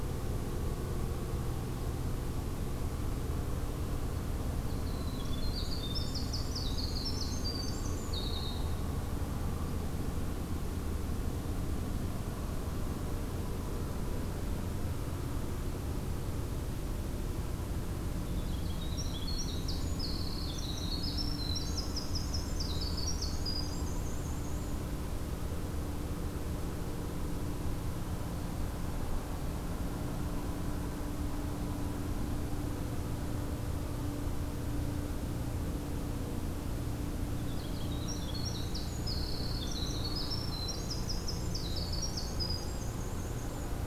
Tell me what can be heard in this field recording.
Winter Wren